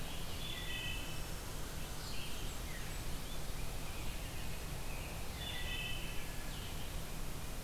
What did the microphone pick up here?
American Robin, Red-eyed Vireo, Wood Thrush, Blackburnian Warbler, Rose-breasted Grosbeak